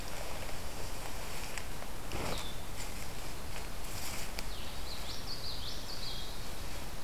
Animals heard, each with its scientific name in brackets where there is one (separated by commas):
Blue-headed Vireo (Vireo solitarius), Common Yellowthroat (Geothlypis trichas)